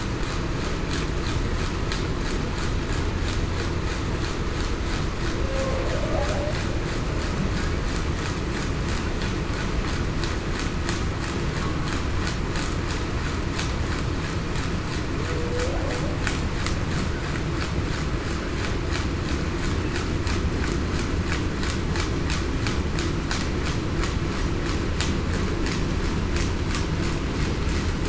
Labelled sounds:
5.4	6.5	humpback whale, 0.49 to 0.68 kHz
15.5	15.9	humpback whale, 0.47 to 0.82 kHz

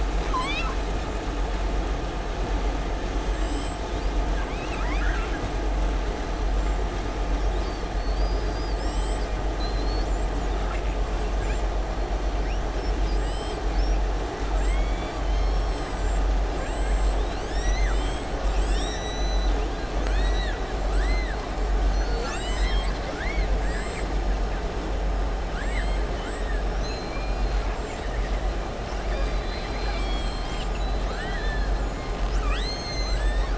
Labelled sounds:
0.1	0.8	killer whale, southern resident, 1.0 to 6.2 kHz
3.2	3.8	killer whale, southern resident, 7.1 to 8.0 kHz
4.3	5.4	killer whale, southern resident, 0.98 to 6.4 kHz
9.5	10.1	killer whale, southern resident, 3.4 to 5.3 kHz
14.4	15.2	killer whale, southern resident, 0.92 to 3.5 kHz
19.9	20.6	killer whale, southern resident, 1.2 to 7.9 kHz
20.9	21.4	killer whale, southern resident, 1.1 to 4.7 kHz
25.4	26.0	killer whale, southern resident, 1.3 to 4.2 kHz
27.8	28.3	killer whale, southern resident, 1.8 to 2.8 kHz
32.2	33.5	killer whale, southern resident, 1.2 to 7.9 kHz

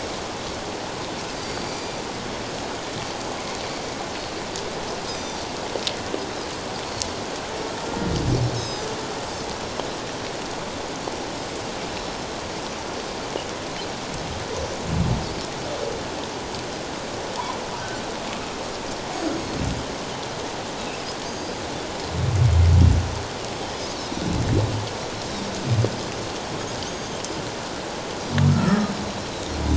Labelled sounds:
1.3	2.0	Pacific white-sided dolphin, 2.2 to 4.8 kHz
5.1	5.4	Pacific white-sided dolphin, 3.5 to 6.3 kHz
8.5	8.9	Pacific white-sided dolphin, 3.7 to 6.7 kHz
11.9	12.3	Pacific white-sided dolphin, 5.3 to 5.4 kHz
19.1	19.6	Pacific white-sided dolphin, 6.4 to 6.7 kHz
21.2	21.6	Pacific white-sided dolphin, 4.7 to 4.9 kHz
26.8	27.2	Pacific white-sided dolphin, 6.2 to 8.0 kHz
28.5	28.9	humpback whale, 1.2 to 1.4 kHz

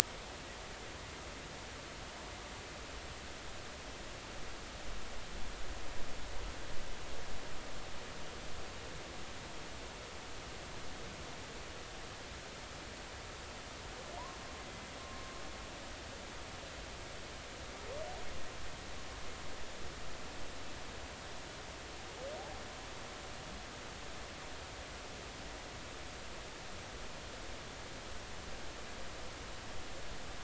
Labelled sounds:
15.0	15.3	humpback whale, 1.0 to 1.1 kHz

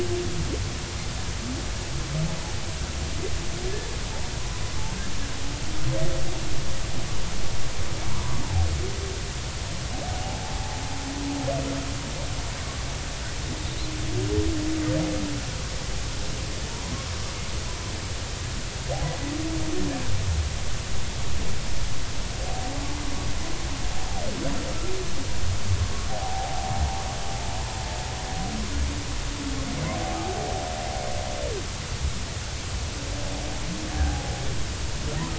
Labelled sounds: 10.2	10.5	humpback whale, 0.80 to 0.90 kHz
13.7	13.9	humpback whale, 3.6 to 4.3 kHz
16.7	16.9	humpback whale, 0.90 to 1.1 kHz
25.8	26.7	humpback whale, 0.80 to 1.2 kHz
33.9	34.2	humpback whale, 0.80 to 0.86 kHz

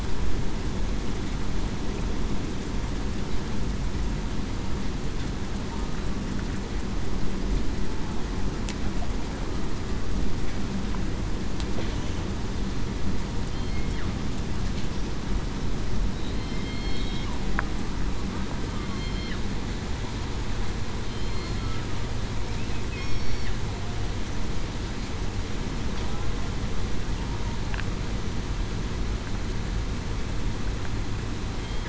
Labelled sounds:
13.5	13.8	killer whale, southern resident, 4.2 to 4.3 kHz
16.4	17.1	killer whale, southern resident, 2.1 to 2.2 kHz
18.8	19.3	killer whale, southern resident, 3.1 to 3.2 kHz
21.2	21.8	killer whale, southern resident, 4.2 to 4.3 kHz
23.0	23.4	killer whale, southern resident, 5.4 to 5.6 kHz

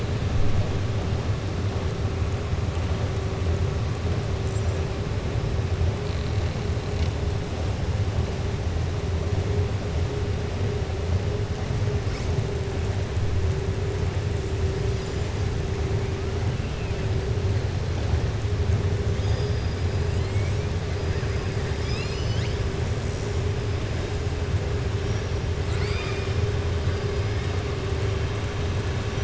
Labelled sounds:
25.6	26.3	killer whale, southern resident, 1.2 to 5.3 kHz

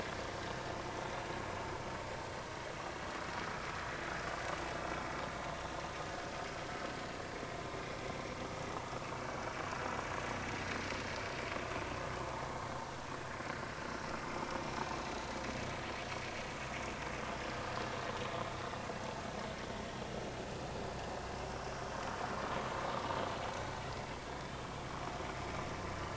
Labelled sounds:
17.9	18.3	vessel noise, 3.7 to 3.8 kHz

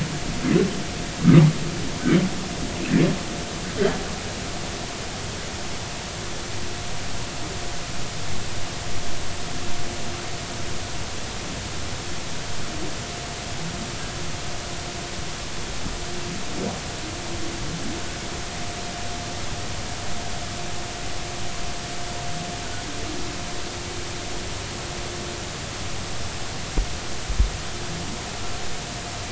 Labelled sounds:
1.2	1.5	humpback whale, 1.1 to 1.3 kHz

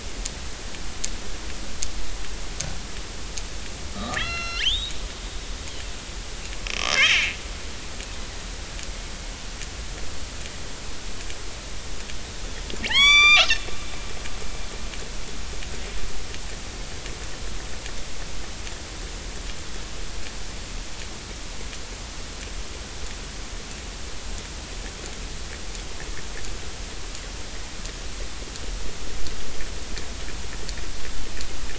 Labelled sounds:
3.9	5.0	killer whale, northern resident, 1.1 to 6.2 kHz
6.8	7.3	killer whale, northern resident, 1.5 to 3.3 kHz
12.8	13.5	killer whale, northern resident, 0.80 to 8.0 kHz

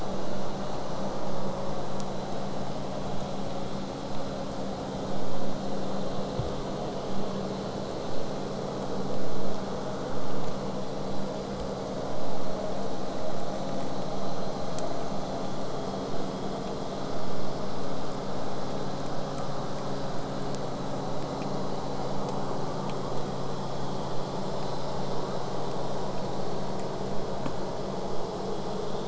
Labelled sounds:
24.1	29.0	vessel noise, 0 to 8.0 kHz

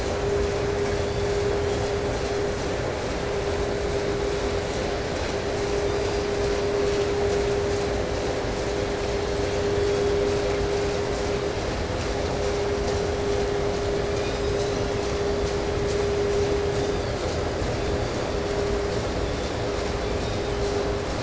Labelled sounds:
0.9	2.5	killer whale, southern resident, 2.9 to 6.4 kHz
5.5	7.3	killer whale, southern resident, 1.6 to 5.4 kHz
8.7	10.4	killer whale, 3.0 to 4.7 kHz
13.8	15.6	killer whale, 1.9 to 8.0 kHz
16.4	17.4	killer whale, 2.7 to 7.1 kHz
17.6	18.7	killer whale, southern resident, 3.0 to 5.4 kHz
18.9	19.7	killer whale, 3.2 to 4.7 kHz
20.0	20.7	killer whale, 2.8 to 4.3 kHz

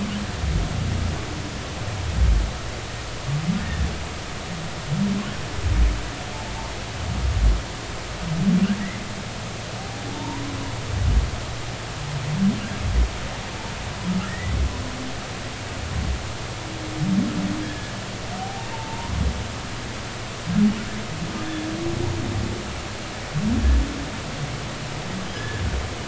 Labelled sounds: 3.6	3.9	humpback whale, 1.7 to 1.9 kHz
10.1	10.4	humpback whale, 0.80 to 1.1 kHz
14.2	14.6	humpback whale, 1.6 to 2.0 kHz
17.6	17.9	humpback whale, 1.6 to 1.8 kHz
18.4	19.2	humpback whale, 0.80 to 1.1 kHz
25.3	25.6	humpback whale, 1.6 to 1.8 kHz

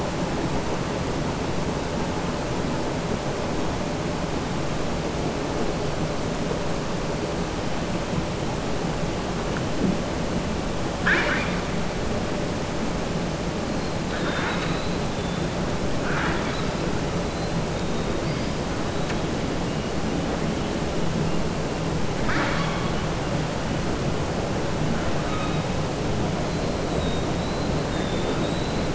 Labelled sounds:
10.9	11.6	killer whale, southern resident, 0.75 to 5.4 kHz
14.1	14.9	killer whale, southern resident, 0.92 to 4.2 kHz
15.9	16.7	killer whale, southern resident, 0.87 to 4.6 kHz
22.1	23.0	killer whale, southern resident, 0.86 to 5.6 kHz

